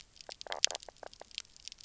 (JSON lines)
{"label": "biophony, knock croak", "recorder": "SoundTrap 300"}